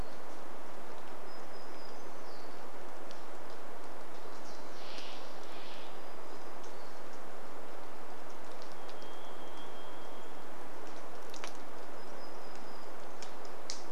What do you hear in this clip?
warbler song, rain, Steller's Jay call, Varied Thrush song